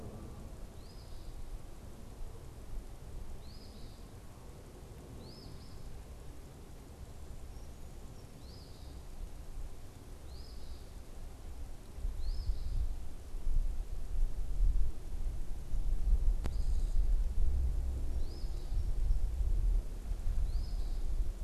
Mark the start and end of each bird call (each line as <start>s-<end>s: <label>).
0.0s-5.9s: Eastern Phoebe (Sayornis phoebe)
8.3s-13.0s: Eastern Phoebe (Sayornis phoebe)
17.8s-21.3s: Eastern Phoebe (Sayornis phoebe)